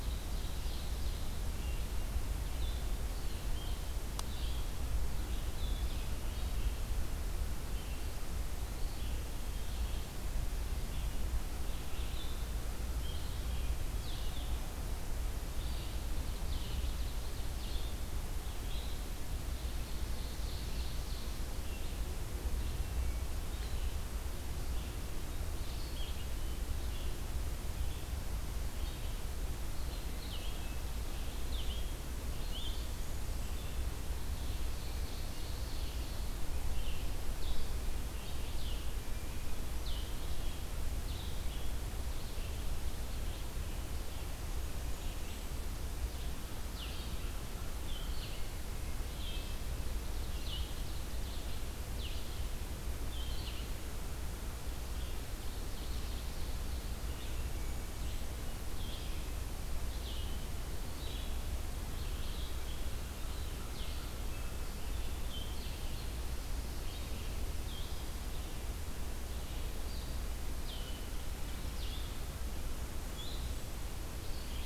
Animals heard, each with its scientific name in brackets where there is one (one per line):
Ovenbird (Seiurus aurocapilla)
Golden-crowned Kinglet (Regulus satrapa)
Wood Thrush (Hylocichla mustelina)
Red-eyed Vireo (Vireo olivaceus)